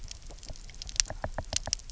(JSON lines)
{"label": "biophony, knock", "recorder": "SoundTrap 300"}